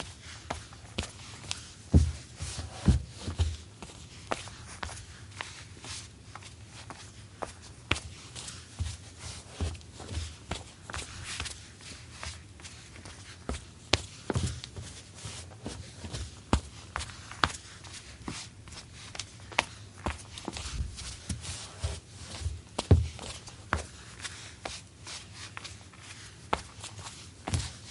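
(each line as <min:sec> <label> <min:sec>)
0:00.0 Repeating thumping sound similar to footsteps. 0:27.9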